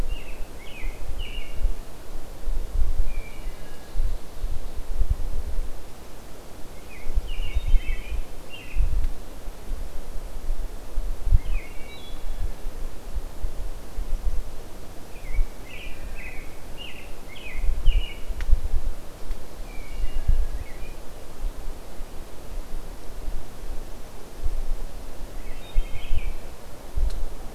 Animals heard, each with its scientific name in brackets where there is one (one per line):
Wood Thrush (Hylocichla mustelina)
American Robin (Turdus migratorius)